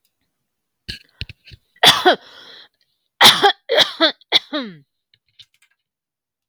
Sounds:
Cough